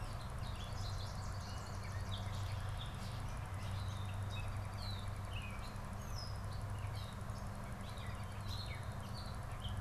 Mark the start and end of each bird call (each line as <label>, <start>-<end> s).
Gray Catbird (Dumetella carolinensis), 0.0-9.8 s
Swamp Sparrow (Melospiza georgiana), 0.2-2.5 s